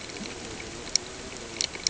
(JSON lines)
{"label": "ambient", "recorder": "HydroMoth"}